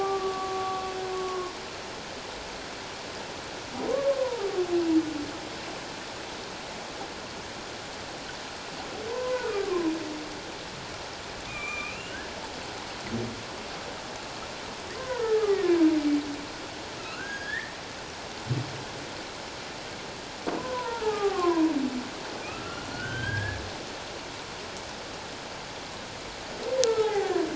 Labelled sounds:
0.0	1.5	humpback whale, 1.0 to 1.2 kHz
3.9	4.5	humpback whale, 0.78 to 1.2 kHz
9.1	9.9	humpback whale, 0.88 to 1.6 kHz
11.5	12.2	humpback whale, 1.1 to 3.0 kHz
15.0	15.9	humpback whale, 0.91 to 2.0 kHz
17.0	17.8	humpback whale, 1.2 to 5.1 kHz
20.6	21.7	humpback whale, 0.78 to 1.6 kHz
22.5	23.6	humpback whale, 1.2 to 3.4 kHz
26.8	27.4	humpback whale, 0.78 to 2.1 kHz

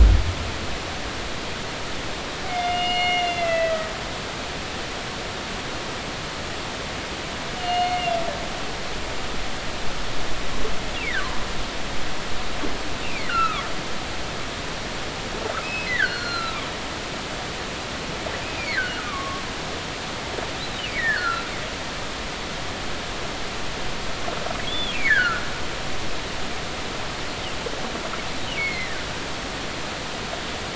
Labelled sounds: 2.5	3.9	humpback whale, 1.9 to 4.4 kHz
7.6	8.1	humpback whale, 2.0 to 4.4 kHz
13.0	13.6	humpback whale, 1.1 to 2.9 kHz
15.6	16.6	humpback whale, 1.2 to 4.6 kHz
18.6	19.4	humpback whale, 1.0 to 2.5 kHz
20.9	21.5	humpback whale, 1.3 to 4.4 kHz
24.6	25.4	humpback whale, 1.2 to 3.6 kHz
28.6	29.1	humpback whale, 1.4 to 4.4 kHz

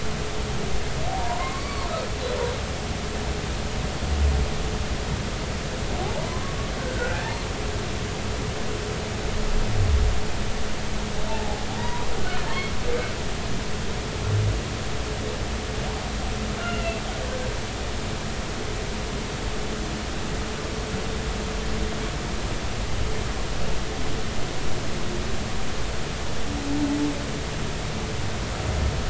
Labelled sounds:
1.2	1.9	humpback whale, 0.86 to 4.6 kHz
6.0	6.6	humpback whale, 0.80 to 1.2 kHz
6.8	7.2	humpback whale, 1.4 to 1.6 kHz
11.3	12.1	humpback whale, 0.80 to 1.1 kHz
16.6	17.0	humpback whale, 1.3 to 2.9 kHz

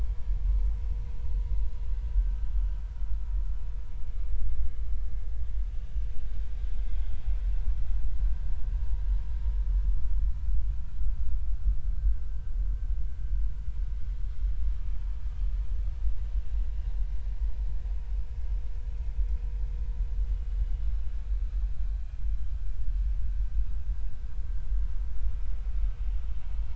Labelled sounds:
6.9	7.2	vessel noise, 3.2 to 3.5 kHz

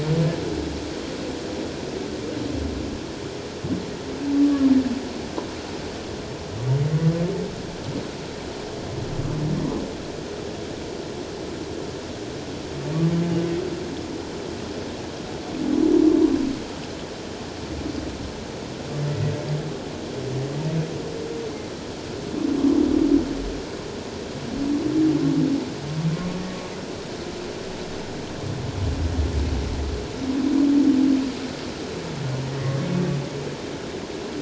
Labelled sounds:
4.3	4.7	humpback whale, 1.0 to 1.2 kHz

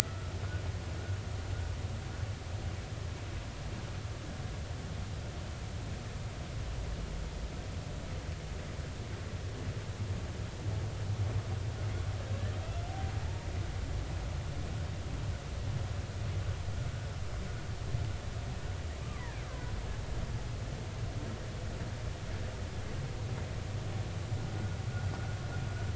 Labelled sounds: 0.0	0.3	vessel noise, 1.3 to 1.5 kHz
13.2	13.5	humpback whale, 0.83 to 0.99 kHz
19.0	19.3	killer whale, Bigg's (transient), 0.90 to 1.2 kHz

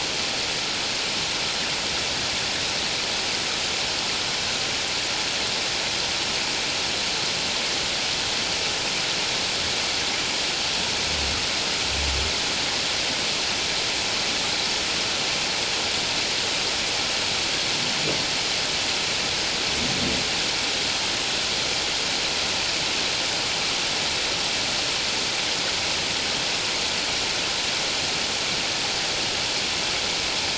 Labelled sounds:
1.1	1.3	vessel noise, 3.6 to 3.7 kHz

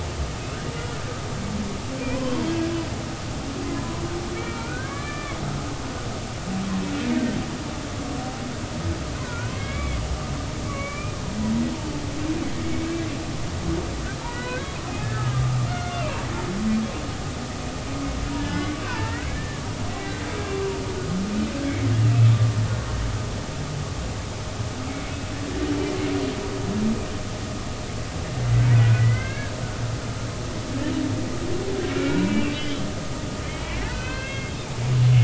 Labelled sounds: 2.0	2.4	humpback whale, 0.93 to 2.7 kHz
3.6	4.0	humpback whale, 0.96 to 1.1 kHz
4.4	5.4	humpback whale, 1.1 to 2.5 kHz
9.2	10.0	humpback whale, 0.93 to 3.5 kHz
10.7	11.2	humpback whale, 1.1 to 2.5 kHz
14.2	16.2	humpback whale, 0.86 to 3.0 kHz
18.4	19.6	humpback whale, 0.86 to 2.0 kHz
19.9	20.3	humpback whale, 1.5 to 2.0 kHz
24.9	25.1	humpback whale, 2.1 to 2.3 kHz
28.8	29.5	humpback whale, 1.4 to 2.3 kHz
31.9	32.9	humpback whale, 1.3 to 3.4 kHz
33.4	34.5	humpback whale, 1.4 to 3.3 kHz

